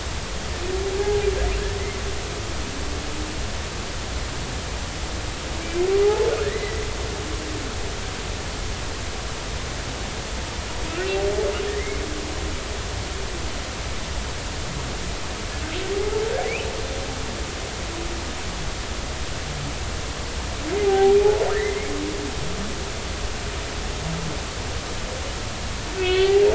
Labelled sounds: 0.9	1.3	humpback whale, 0.80 to 0.86 kHz
6.0	6.9	humpback whale, 0.80 to 4.1 kHz
11.8	12.0	humpback whale, 1.9 to 2.2 kHz
20.8	21.2	humpback whale, 0.80 to 0.86 kHz
26.0	26.4	humpback whale, 1.4 to 2.7 kHz

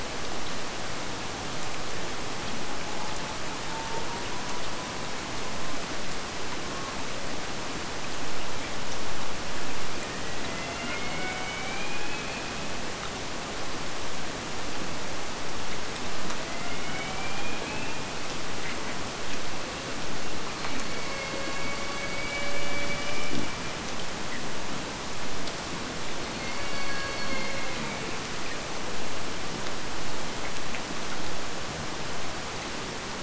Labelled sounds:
2.7	7.0	killer whale, Bigg's (transient), AT1 transient, 0.72 to 1.2 kHz
9.7	12.8	killer whale, Bigg's (transient), AT1 transient, 0.55 to 4.6 kHz
16.2	18.7	killer whale, Bigg's (transient), AT1 transient, 0.53 to 4.4 kHz
20.5	24.1	killer whale, Bigg's (transient), AT1 transient, 0.44 to 6.0 kHz
26.2	28.6	killer whale, Bigg's (transient), AT1 transient, 0.40 to 4.7 kHz

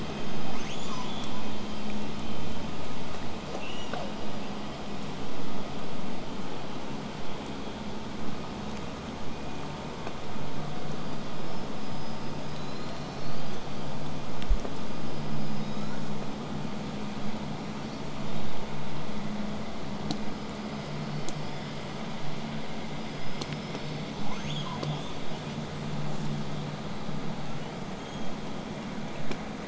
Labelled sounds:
0.5	1.5	killer whale, southern resident, L pod, call S02iii, 0.66 to 8.0 kHz
3.6	4.1	killer whale, southern resident, J pod, call S44, 0.31 to 8.0 kHz
11.0	12.6	killer whale, southern resident, whistle, 4.6 to 5.4 kHz
12.4	13.7	killer whale, southern resident, L pod, call S19, 2.9 to 7.2 kHz
14.9	16.0	killer whale, southern resident, L pod, call S19, 0.81 to 7.9 kHz
17.6	18.2	killer whale, southern resident, 1.9 to 4.8 kHz
20.2	21.9	killer whale, southern resident, L pod, call S19, 1.9 to 8.0 kHz
22.9	24.8	killer whale, southern resident, L pod, call S19, 0.69 to 8.0 kHz
24.8	25.6	killer whale, southern resident, 2.1 to 4.1 kHz
26.1	26.3	killer whale, southern resident, J pod, call S05, 0.35 to 8.0 kHz
27.5	28.4	killer whale, southern resident, 2.8 to 6.7 kHz

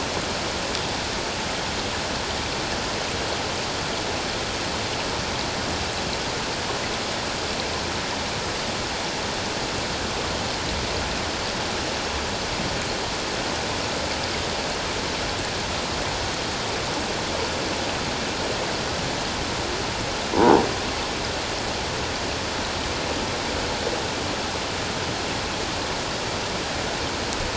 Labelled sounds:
20.3	20.7	croaking sound likely from a nearby submerged object, 0.78 to 1.0 kHz

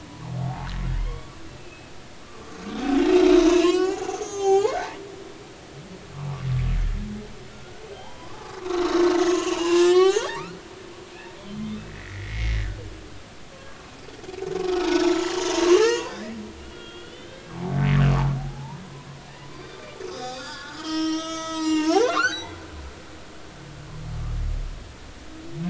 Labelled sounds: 0.1	0.7	humpback whale, 0.80 to 1.2 kHz
1.0	2.6	humpback whale, 1.0 to 3.5 kHz
3.1	4.8	humpback whale, 0.80 to 7.3 kHz
7.5	12.6	humpback whale, 0.80 to 6.8 kHz
13.5	13.8	humpback whale, 1.0 to 1.2 kHz
15.0	16.3	humpback whale, 0.80 to 7.1 kHz
16.6	17.6	humpback whale, 1.3 to 3.8 kHz
18.4	18.8	humpback whale, 0.80 to 1.0 kHz
19.5	22.6	humpback whale, 0.80 to 8.0 kHz

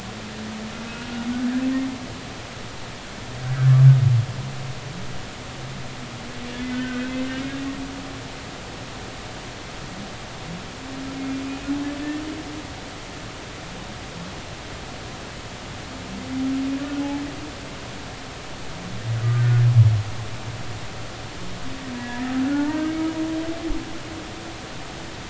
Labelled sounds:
3.5	3.7	humpback whale, 1.4 to 1.7 kHz
6.7	7.2	humpback whale, 1.4 to 2.7 kHz
11.5	11.7	humpback whale, 2.4 to 2.6 kHz
19.3	19.6	humpback whale, 1.4 to 1.6 kHz
22.0	23.0	humpback whale, 0.80 to 1.9 kHz

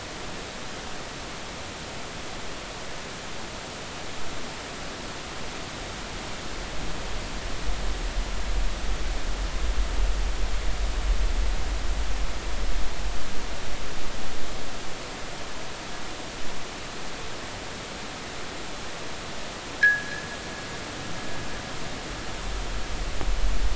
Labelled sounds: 19.8	20.2	fishing gear, 1.3 to 1.9 kHz

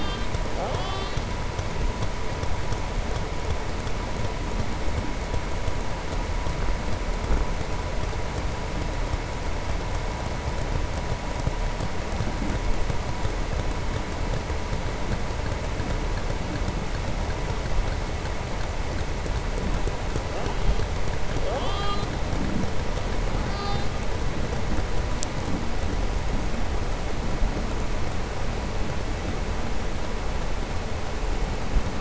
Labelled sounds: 23.4	23.9	killer whale, southern resident, 2.8 to 5.7 kHz

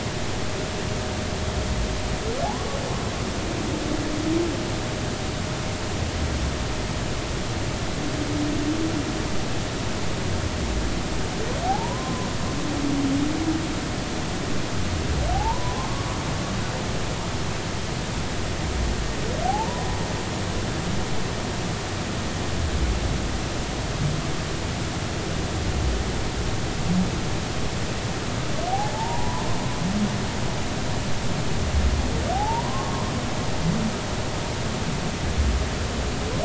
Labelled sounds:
2.4	2.8	humpback whale, 0.80 to 1.2 kHz
11.6	12.3	humpback whale, 0.80 to 1.1 kHz
15.3	16.1	humpback whale, 0.80 to 1.2 kHz
19.4	19.9	humpback whale, 0.80 to 1.0 kHz
28.9	29.4	humpback whale, 0.80 to 1.1 kHz
32.3	33.1	humpback whale, 0.80 to 1.2 kHz

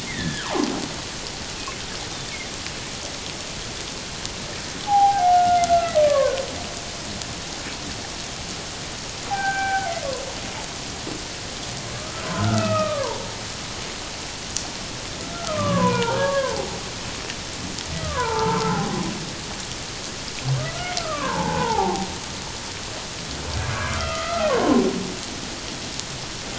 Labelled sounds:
0.0	0.5	humpback whale, 1.4 to 2.2 kHz
4.8	6.4	humpback whale, 0.78 to 3.6 kHz
9.3	9.9	humpback whale, 0.78 to 2.4 kHz
12.0	13.3	humpback whale, 0.81 to 2.7 kHz
15.3	16.8	humpback whale, 0.78 to 2.5 kHz
18.0	19.0	humpback whale, 0.78 to 1.6 kHz
21.0	22.1	humpback whale, 0.78 to 1.6 kHz
23.7	24.8	humpback whale, 0.94 to 2.4 kHz

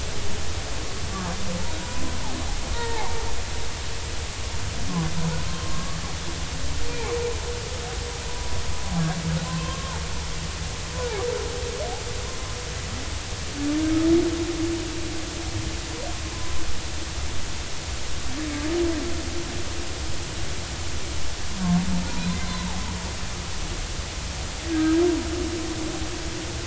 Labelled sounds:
1.8	3.2	humpback whale, 0.80 to 2.0 kHz
5.5	6.0	humpback whale, 1.0 to 1.2 kHz
6.9	7.2	humpback whale, 2.2 to 2.5 kHz
9.4	10.0	humpback whale, 0.83 to 1.1 kHz
11.0	11.3	humpback whale, 0.80 to 1.1 kHz
16.2	16.6	humpback whale, 0.96 to 1.1 kHz
22.4	22.8	humpback whale, 0.80 to 4.2 kHz
24.7	25.0	humpback whale, 1.5 to 1.7 kHz

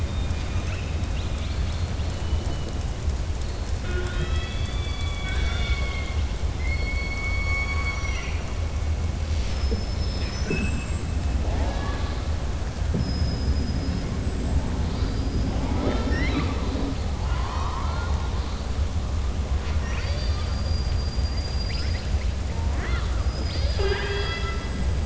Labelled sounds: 0.0	2.7	killer whale, southern resident, 1.4 to 6.3 kHz
11.4	12.2	killer whale, southern resident, 0.45 to 4.8 kHz
17.2	18.2	killer whale, southern resident, 0.84 to 5.7 kHz

